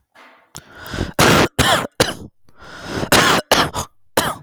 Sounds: Cough